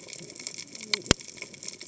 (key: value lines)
label: biophony, cascading saw
recorder: HydroMoth